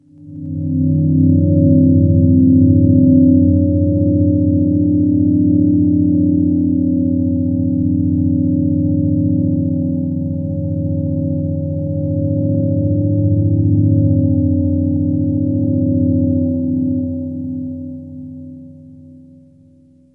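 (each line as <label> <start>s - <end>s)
A low buzzing sound. 0.0s - 20.1s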